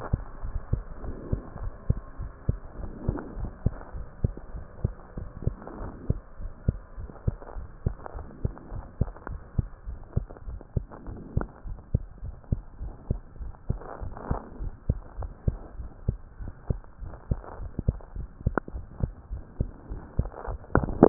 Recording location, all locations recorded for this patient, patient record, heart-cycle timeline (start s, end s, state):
mitral valve (MV)
aortic valve (AV)+pulmonary valve (PV)+tricuspid valve (TV)+mitral valve (MV)
#Age: Child
#Sex: Male
#Height: 108.0 cm
#Weight: 16.7 kg
#Pregnancy status: False
#Murmur: Absent
#Murmur locations: nan
#Most audible location: nan
#Systolic murmur timing: nan
#Systolic murmur shape: nan
#Systolic murmur grading: nan
#Systolic murmur pitch: nan
#Systolic murmur quality: nan
#Diastolic murmur timing: nan
#Diastolic murmur shape: nan
#Diastolic murmur grading: nan
#Diastolic murmur pitch: nan
#Diastolic murmur quality: nan
#Outcome: Normal
#Campaign: 2015 screening campaign
0.00	0.18	S2
0.18	0.40	diastole
0.40	0.52	S1
0.52	0.68	systole
0.68	0.84	S2
0.84	1.02	diastole
1.02	1.16	S1
1.16	1.30	systole
1.30	1.44	S2
1.44	1.60	diastole
1.60	1.72	S1
1.72	1.88	systole
1.88	2.02	S2
2.02	2.18	diastole
2.18	2.32	S1
2.32	2.46	systole
2.46	2.60	S2
2.60	2.78	diastole
2.78	2.90	S1
2.90	3.06	systole
3.06	3.20	S2
3.20	3.36	diastole
3.36	3.50	S1
3.50	3.64	systole
3.64	3.76	S2
3.76	3.94	diastole
3.94	4.06	S1
4.06	4.22	systole
4.22	4.36	S2
4.36	4.54	diastole
4.54	4.64	S1
4.64	4.82	systole
4.82	4.96	S2
4.96	5.16	diastole
5.16	5.28	S1
5.28	5.42	systole
5.42	5.58	S2
5.58	5.78	diastole
5.78	5.90	S1
5.90	6.06	systole
6.06	6.20	S2
6.20	6.40	diastole
6.40	6.52	S1
6.52	6.64	systole
6.64	6.80	S2
6.80	6.98	diastole
6.98	7.08	S1
7.08	7.26	systole
7.26	7.38	S2
7.38	7.56	diastole
7.56	7.68	S1
7.68	7.82	systole
7.82	7.96	S2
7.96	8.14	diastole
8.14	8.26	S1
8.26	8.42	systole
8.42	8.54	S2
8.54	8.70	diastole
8.70	8.82	S1
8.82	8.96	systole
8.96	9.10	S2
9.10	9.30	diastole
9.30	9.40	S1
9.40	9.54	systole
9.54	9.68	S2
9.68	9.88	diastole
9.88	10.00	S1
10.00	10.12	systole
10.12	10.26	S2
10.26	10.48	diastole
10.48	10.60	S1
10.60	10.72	systole
10.72	10.86	S2
10.86	11.06	diastole
11.06	11.18	S1
11.18	11.34	systole
11.34	11.48	S2
11.48	11.66	diastole
11.66	11.78	S1
11.78	11.94	systole
11.94	12.08	S2
12.08	12.24	diastole
12.24	12.36	S1
12.36	12.48	systole
12.48	12.62	S2
12.62	12.82	diastole
12.82	12.94	S1
12.94	13.08	systole
13.08	13.22	S2
13.22	13.40	diastole
13.40	13.52	S1
13.52	13.70	systole
13.70	13.82	S2
13.82	14.02	diastole
14.02	14.14	S1
14.14	14.28	systole
14.28	14.40	S2
14.40	14.60	diastole
14.60	14.74	S1
14.74	14.87	systole
14.87	14.99	S2
14.99	15.18	diastole
15.18	15.32	S1
15.32	15.44	systole
15.44	15.58	S2
15.58	15.78	diastole
15.78	15.90	S1
15.90	16.06	systole
16.06	16.18	S2
16.18	16.40	diastole
16.40	16.52	S1
16.52	16.66	systole
16.66	16.80	S2
16.80	16.99	diastole
16.99	17.12	S1
17.12	17.28	systole
17.28	17.42	S2
17.42	17.59	diastole
17.59	17.72	S1
17.72	17.86	systole
17.86	18.00	S2
18.00	18.14	diastole
18.14	18.28	S1
18.28	18.42	systole
18.42	18.56	S2
18.56	18.72	diastole
18.72	18.88	S1
18.88	18.99	systole
18.99	19.14	S2
19.14	19.30	diastole
19.30	19.42	S1
19.42	19.57	systole
19.57	19.72	S2
19.72	19.88	diastole
19.88	20.02	S1
20.02	20.16	systole
20.16	20.30	S2
20.30	20.48	diastole
20.48	20.60	S1